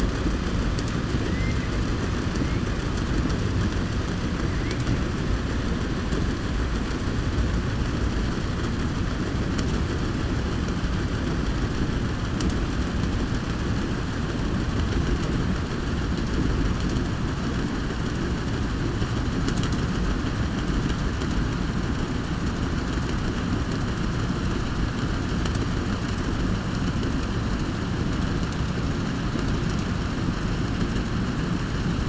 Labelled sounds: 1.2	1.7	killer whale, southern resident, 1.6 to 2.7 kHz

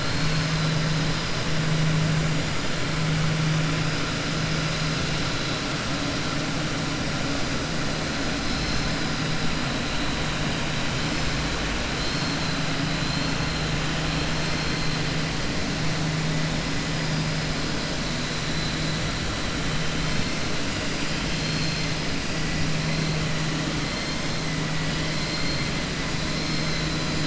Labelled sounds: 0.0	0.7	vessel noise, 3.8 to 5.2 kHz
11.9	12.4	vessel noise, 3.1 to 5.4 kHz
21.2	21.9	vessel noise, 3.2 to 6.2 kHz
25.2	25.6	vessel noise, 3.3 to 4.3 kHz

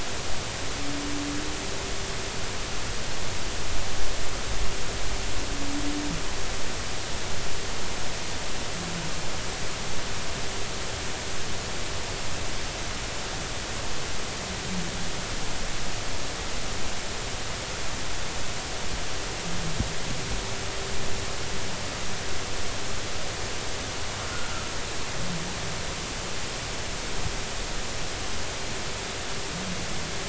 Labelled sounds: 24.3	24.7	humpback whale, 1.2 to 1.5 kHz

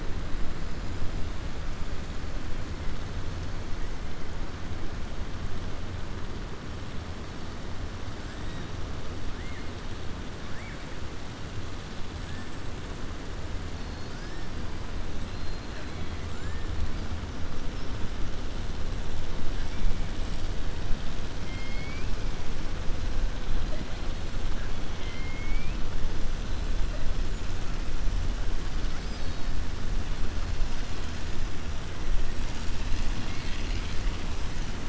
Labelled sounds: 21.4	22.1	killer whale, 2.1 to 5.7 kHz
24.9	25.8	killer whale, 2.1 to 3.8 kHz

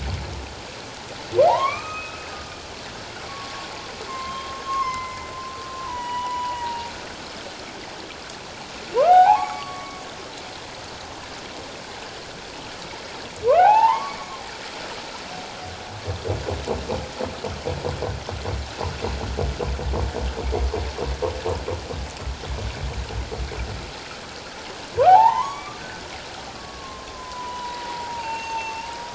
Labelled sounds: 1.4	2.3	humpback whale, 0.78 to 6.3 kHz
3.3	5.3	humpback whale, 0.94 to 6.5 kHz
5.8	6.9	humpback whale, 0.84 to 3.0 kHz
9.0	10.0	humpback whale, 0.78 to 2.7 kHz
13.5	14.2	humpback whale, 0.78 to 2.8 kHz
25.0	25.8	humpback whale, 0.78 to 2.4 kHz
26.6	29.0	humpback whale, 0.81 to 6.5 kHz

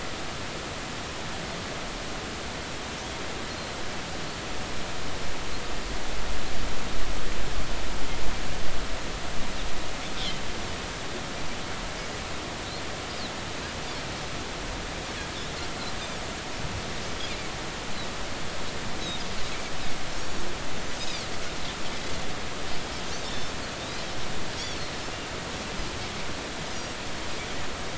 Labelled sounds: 3.5	3.7	Pacific white-sided dolphin, 4.0 to 4.3 kHz
20.1	20.4	Pacific white-sided dolphin, 5.2 to 5.8 kHz
21.0	21.2	Pacific white-sided dolphin, 4.5 to 5.2 kHz
23.2	24.1	Pacific white-sided dolphin, 3.5 to 4.3 kHz
25.6	25.9	Pacific white-sided dolphin, 4.2 to 4.8 kHz

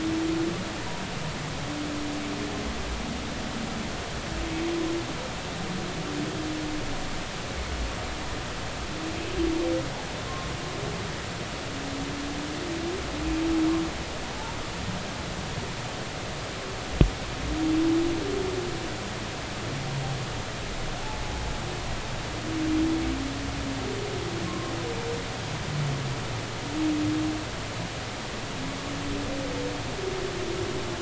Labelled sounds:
21.0	21.3	humpback whale, 0.80 to 0.93 kHz
24.5	24.7	humpback whale, 1.0 to 1.2 kHz

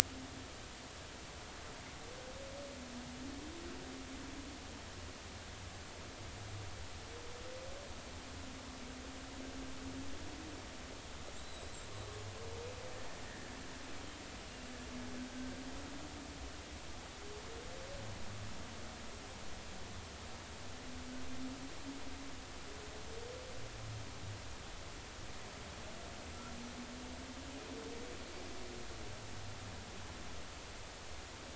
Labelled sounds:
11.4	11.8	killer whale, Bigg's (transient), 3.7 to 4.1 kHz
13.3	13.5	killer whale, Bigg's (transient), 1.6 to 2.0 kHz
14.4	14.7	killer whale, Bigg's (transient), 2.7 to 2.9 kHz

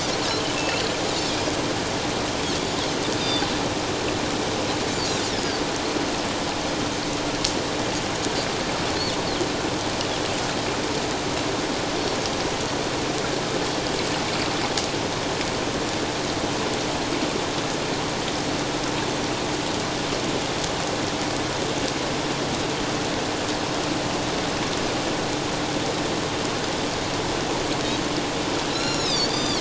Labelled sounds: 0.6	1.3	Pacific white-sided dolphin, 2.6 to 3.9 kHz
3.2	3.5	Pacific white-sided dolphin, 3.5 to 4.9 kHz
5.3	5.6	Pacific white-sided dolphin, 4.4 to 5.2 kHz
28.7	29.5	Pacific white-sided dolphin, 3.3 to 7.3 kHz

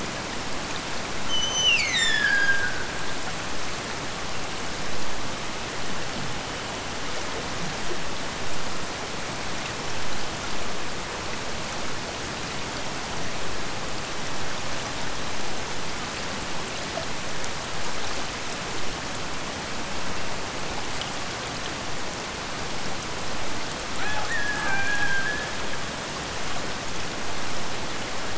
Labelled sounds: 1.2	3.4	killer whale, Bigg's (transient), Gulf of Alaska transient, 1.4 to 8.0 kHz
23.9	26.1	killer whale, Bigg's (transient), Gulf of Alaska transient, 0.45 to 3.6 kHz

